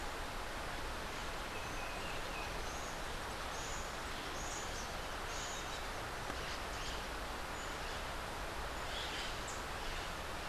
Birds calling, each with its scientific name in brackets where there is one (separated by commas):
Rufous-capped Warbler (Basileuterus rufifrons), Buff-throated Saltator (Saltator maximus), Crimson-fronted Parakeet (Psittacara finschi)